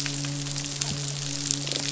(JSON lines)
{"label": "biophony, midshipman", "recorder": "SoundTrap 500"}